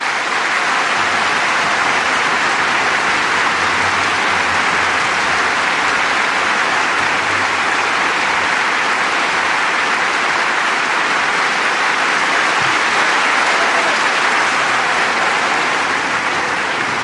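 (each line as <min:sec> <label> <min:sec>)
0:00.0 Continuous applause from a large audience indoors. 0:17.0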